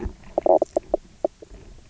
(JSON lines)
{"label": "biophony, knock croak", "recorder": "SoundTrap 300"}